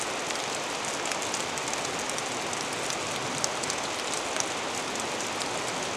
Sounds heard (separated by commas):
rain